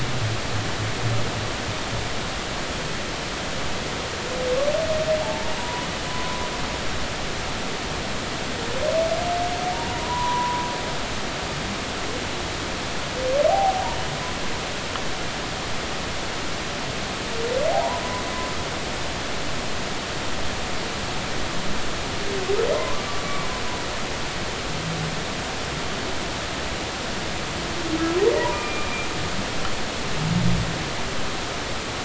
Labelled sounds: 5.2	6.5	humpback whale, 0.80 to 1.1 kHz
9.7	10.6	humpback whale, 0.90 to 1.1 kHz
13.5	13.8	humpback whale, 0.80 to 0.86 kHz
17.7	18.0	humpback whale, 0.80 to 1.1 kHz
23.2	23.5	humpback whale, 0.99 to 1.2 kHz
28.4	28.9	humpback whale, 0.86 to 2.5 kHz

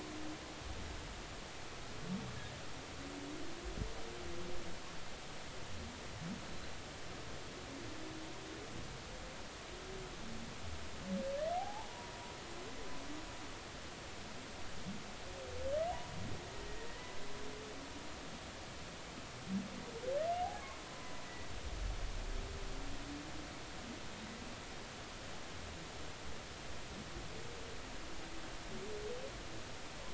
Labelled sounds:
11.5	12.1	humpback whale, 0.80 to 1.0 kHz
20.4	21.5	humpback whale, 0.80 to 2.0 kHz

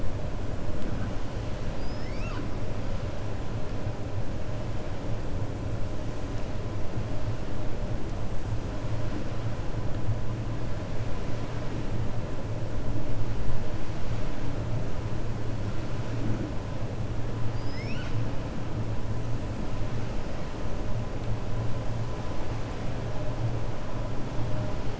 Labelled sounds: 1.7	2.5	killer whale, 1.0 to 6.6 kHz
17.4	18.2	killer whale, 1.4 to 6.4 kHz

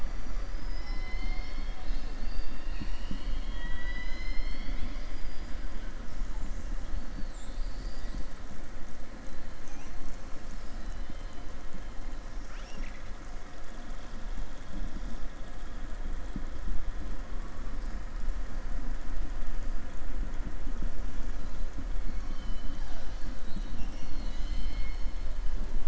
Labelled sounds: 7.1	8.3	killer whale, southern resident, 3.4 to 5.5 kHz
10.8	11.4	killer whale, southern resident, 2.1 to 4.1 kHz
12.3	13.1	killer whale, southern resident, 1.4 to 6.4 kHz

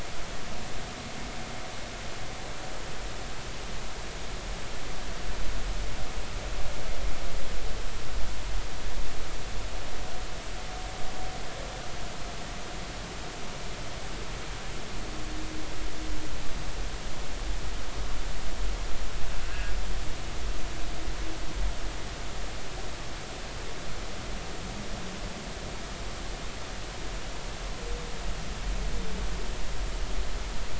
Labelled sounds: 19.4	19.7	humpback whale, 1.5 to 1.7 kHz

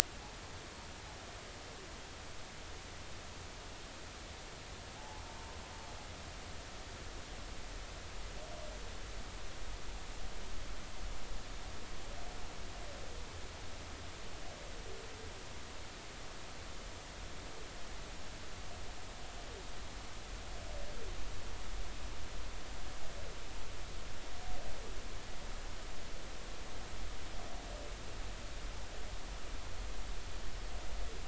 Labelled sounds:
5.0	5.2	humpback whale, 0.80 to 1.1 kHz

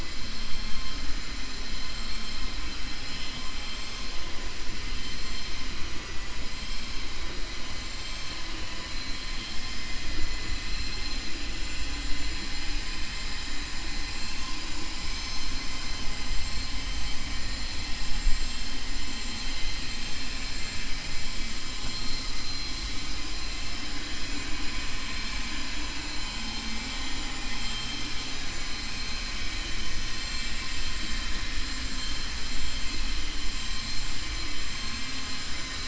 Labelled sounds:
5.9	6.3	vessel noise, 1.0 to 3.0 kHz
10.6	11.2	vessel noise, 2.5 to 5.1 kHz
30.2	30.7	vessel noise, 1.8 to 4.3 kHz

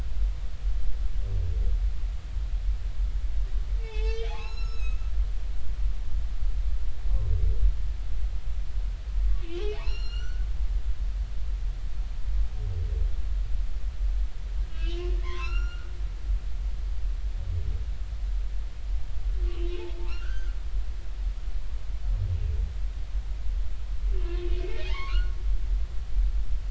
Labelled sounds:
3.8	5.0	humpback whale, 0.80 to 6.8 kHz
9.4	10.5	humpback whale, 1.3 to 7.3 kHz
14.7	15.9	humpback whale, 0.93 to 7.1 kHz
19.5	20.5	humpback whale, 0.99 to 1.7 kHz
24.2	25.3	humpback whale, 0.80 to 3.0 kHz

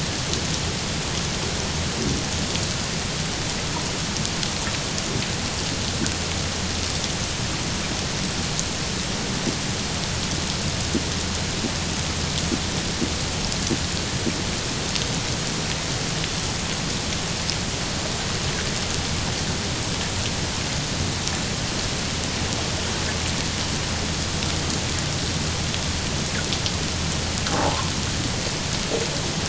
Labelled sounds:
27.5	27.9	fish, 0.78 to 1.1 kHz

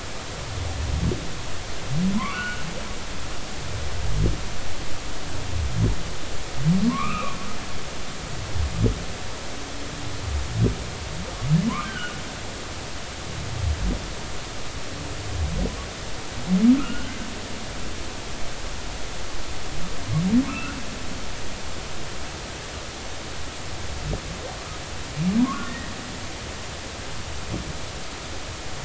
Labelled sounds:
2.2	2.6	humpback whale, 0.96 to 3.0 kHz
6.9	7.4	humpback whale, 0.93 to 2.8 kHz
11.8	12.1	humpback whale, 1.4 to 1.6 kHz
16.7	17.2	humpback whale, 1.2 to 2.9 kHz
20.5	20.8	humpback whale, 1.0 to 2.8 kHz
25.4	25.9	humpback whale, 0.93 to 2.0 kHz

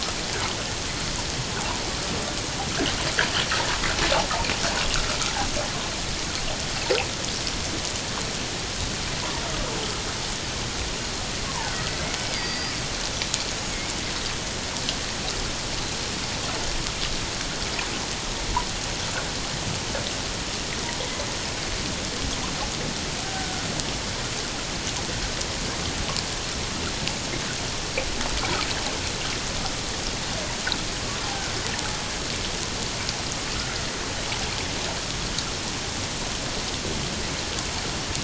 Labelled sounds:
11.4	12.8	killer whale, 0.78 to 4.9 kHz
13.5	13.8	killer whale, 6.5 to 6.7 kHz

